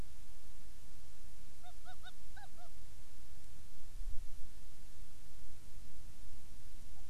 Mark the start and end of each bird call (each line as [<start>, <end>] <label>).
[1.60, 2.70] Hawaiian Petrel (Pterodroma sandwichensis)